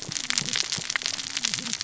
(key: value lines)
label: biophony, cascading saw
recorder: SoundTrap 600 or HydroMoth